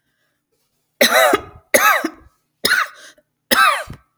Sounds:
Cough